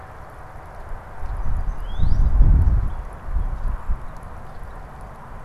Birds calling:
Northern Cardinal (Cardinalis cardinalis)

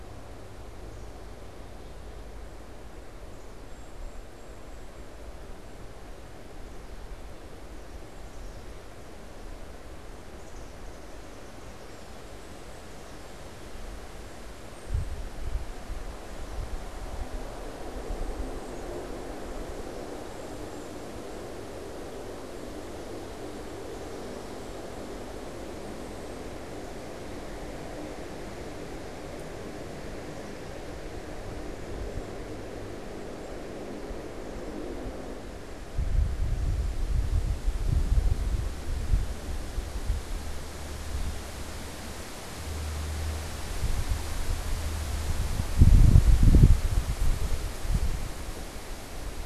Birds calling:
Black-capped Chickadee (Poecile atricapillus)
unidentified bird

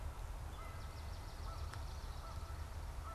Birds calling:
Swamp Sparrow (Melospiza georgiana)
Wood Thrush (Hylocichla mustelina)
Canada Goose (Branta canadensis)

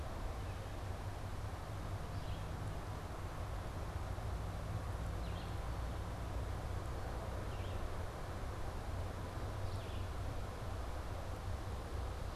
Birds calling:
Red-eyed Vireo (Vireo olivaceus)

